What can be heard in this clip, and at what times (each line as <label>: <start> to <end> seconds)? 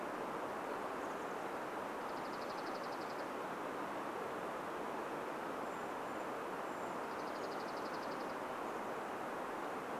Chestnut-backed Chickadee call: 0 to 2 seconds
Dark-eyed Junco song: 2 to 4 seconds
Brown Creeper call: 4 to 8 seconds
Dark-eyed Junco song: 6 to 10 seconds